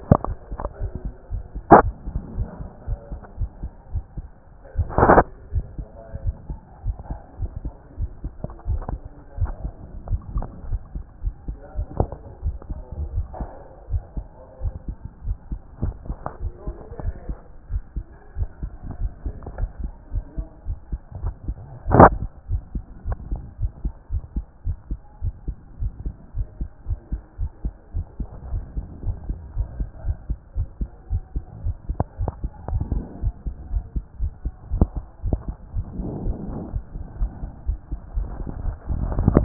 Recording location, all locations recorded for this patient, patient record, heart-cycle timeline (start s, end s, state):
aortic valve (AV)
aortic valve (AV)+pulmonary valve (PV)+tricuspid valve (TV)+mitral valve (MV)
#Age: Child
#Sex: Female
#Height: 142.0 cm
#Weight: 32.4 kg
#Pregnancy status: False
#Murmur: Absent
#Murmur locations: nan
#Most audible location: nan
#Systolic murmur timing: nan
#Systolic murmur shape: nan
#Systolic murmur grading: nan
#Systolic murmur pitch: nan
#Systolic murmur quality: nan
#Diastolic murmur timing: nan
#Diastolic murmur shape: nan
#Diastolic murmur grading: nan
#Diastolic murmur pitch: nan
#Diastolic murmur quality: nan
#Outcome: Abnormal
#Campaign: 2014 screening campaign
0.00	22.37	unannotated
22.37	22.50	diastole
22.50	22.62	S1
22.62	22.74	systole
22.74	22.84	S2
22.84	23.06	diastole
23.06	23.18	S1
23.18	23.30	systole
23.30	23.42	S2
23.42	23.60	diastole
23.60	23.72	S1
23.72	23.84	systole
23.84	23.92	S2
23.92	24.12	diastole
24.12	24.22	S1
24.22	24.36	systole
24.36	24.44	S2
24.44	24.66	diastole
24.66	24.76	S1
24.76	24.90	systole
24.90	24.98	S2
24.98	25.22	diastole
25.22	25.34	S1
25.34	25.46	systole
25.46	25.56	S2
25.56	25.80	diastole
25.80	25.92	S1
25.92	26.04	systole
26.04	26.14	S2
26.14	26.36	diastole
26.36	26.48	S1
26.48	26.60	systole
26.60	26.68	S2
26.68	26.88	diastole
26.88	26.98	S1
26.98	27.12	systole
27.12	27.20	S2
27.20	27.40	diastole
27.40	27.50	S1
27.50	27.64	systole
27.64	27.72	S2
27.72	27.94	diastole
27.94	28.06	S1
28.06	28.18	systole
28.18	28.28	S2
28.28	28.50	diastole
28.50	28.64	S1
28.64	28.76	systole
28.76	28.86	S2
28.86	29.04	diastole
29.04	29.16	S1
29.16	29.28	systole
29.28	29.38	S2
29.38	29.56	diastole
29.56	29.68	S1
29.68	29.78	systole
29.78	29.88	S2
29.88	30.06	diastole
30.06	30.16	S1
30.16	30.28	systole
30.28	30.38	S2
30.38	30.56	diastole
30.56	30.68	S1
30.68	30.80	systole
30.80	30.88	S2
30.88	31.10	diastole
31.10	31.22	S1
31.22	31.34	systole
31.34	31.44	S2
31.44	31.64	diastole
31.64	31.76	S1
31.76	31.90	systole
31.90	32.04	S2
32.04	32.20	diastole
32.20	32.32	S1
32.32	32.42	systole
32.42	32.50	S2
32.50	32.70	diastole
32.70	39.44	unannotated